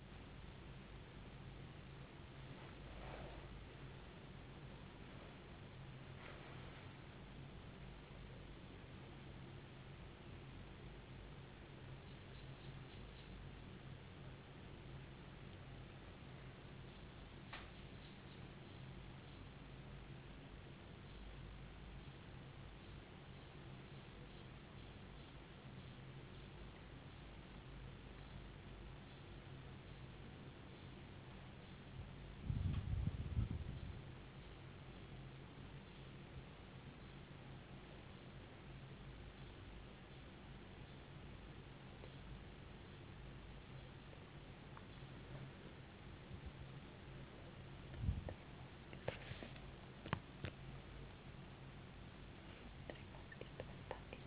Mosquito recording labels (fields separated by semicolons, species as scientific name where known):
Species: no mosquito; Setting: insect culture